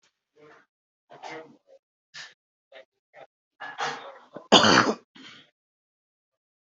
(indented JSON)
{
  "expert_labels": [
    {
      "quality": "ok",
      "cough_type": "dry",
      "dyspnea": false,
      "wheezing": false,
      "stridor": false,
      "choking": false,
      "congestion": false,
      "nothing": true,
      "diagnosis": "lower respiratory tract infection",
      "severity": "mild"
    }
  ],
  "age": 43,
  "gender": "male",
  "respiratory_condition": false,
  "fever_muscle_pain": false,
  "status": "healthy"
}